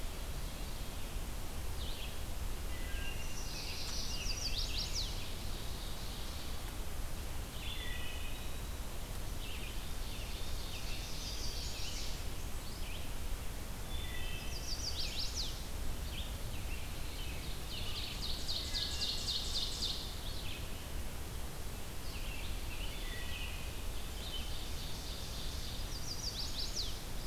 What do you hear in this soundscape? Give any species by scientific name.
Vireo olivaceus, Hylocichla mustelina, Setophaga pensylvanica, Seiurus aurocapilla, Contopus virens, Turdus migratorius